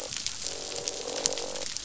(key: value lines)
label: biophony, croak
recorder: SoundTrap 500